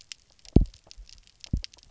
{"label": "biophony, double pulse", "recorder": "SoundTrap 300"}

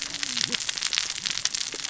{"label": "biophony, cascading saw", "recorder": "SoundTrap 600 or HydroMoth"}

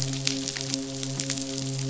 {"label": "biophony, midshipman", "recorder": "SoundTrap 500"}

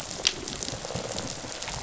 {"label": "biophony, rattle response", "recorder": "SoundTrap 500"}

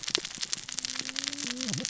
{"label": "biophony, cascading saw", "recorder": "SoundTrap 600 or HydroMoth"}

